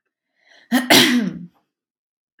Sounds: Throat clearing